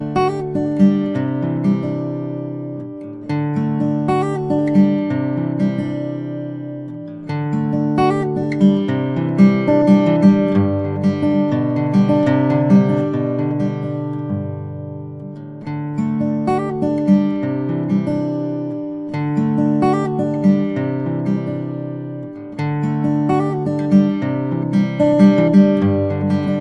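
A soft, bassy thrum from a guitar. 0.0 - 26.6

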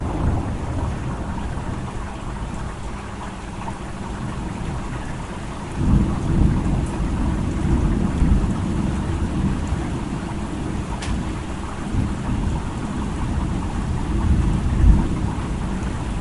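Heavy rain. 1.3 - 5.0
Thunder rumbling. 5.5 - 16.2

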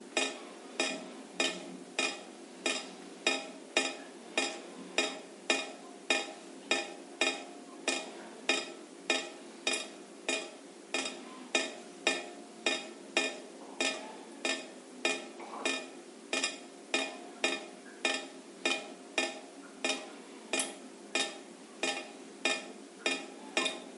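A drop of water falls repeatedly on a metallic surface, producing a rhythmic sound. 0.0 - 24.0

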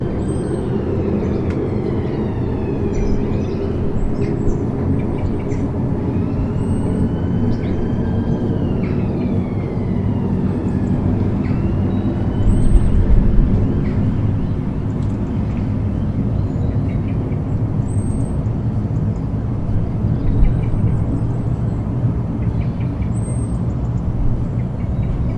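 A jet flies overhead. 0.0 - 25.4
A police car siren repeats in the distance. 0.0 - 25.4
Continuous ambient bird chirping. 0.0 - 25.4

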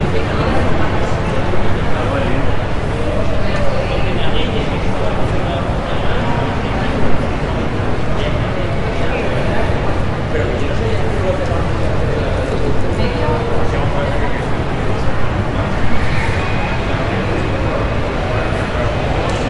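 People chatting loudly and continuously at an airport. 0.0 - 19.5

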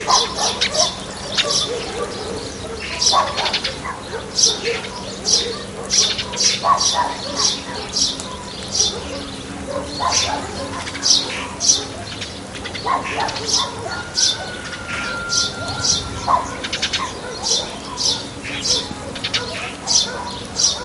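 A dog barks repeatedly in the background outdoors. 0.0 - 20.8
Birds are singing loudly and repeatedly outdoors. 0.0 - 20.8
Dogs barking in the background, muffled. 0.0 - 20.8
Light rain falling repeatedly in the background. 0.0 - 20.8
A rooster crows faintly in the background. 13.7 - 16.1

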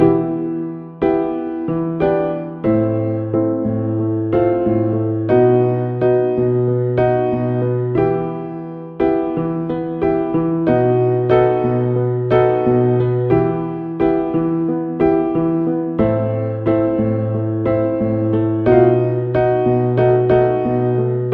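A slow and relaxed piece of music is played on an electronic keyboard. 0.0 - 21.3

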